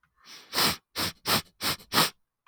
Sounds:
Sniff